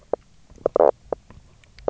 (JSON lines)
{"label": "biophony, knock croak", "recorder": "SoundTrap 300"}